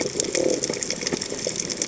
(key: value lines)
label: biophony
recorder: HydroMoth